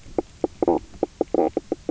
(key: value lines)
label: biophony, knock croak
recorder: SoundTrap 300